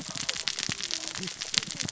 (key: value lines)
label: biophony, cascading saw
recorder: SoundTrap 600 or HydroMoth